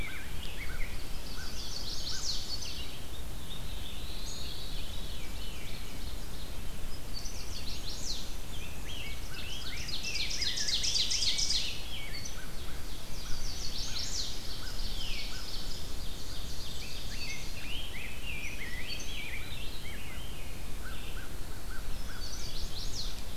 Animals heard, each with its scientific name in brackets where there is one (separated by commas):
Ovenbird (Seiurus aurocapilla), American Crow (Corvus brachyrhynchos), Black-throated Blue Warbler (Setophaga caerulescens), Veery (Catharus fuscescens), Chestnut-sided Warbler (Setophaga pensylvanica), Rose-breasted Grosbeak (Pheucticus ludovicianus)